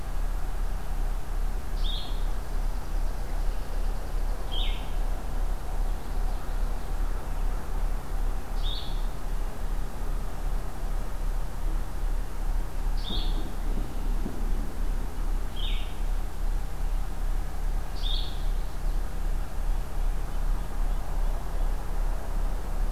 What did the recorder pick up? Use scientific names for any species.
Vireo solitarius, Geothlypis trichas, Sitta carolinensis